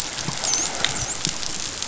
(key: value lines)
label: biophony, dolphin
recorder: SoundTrap 500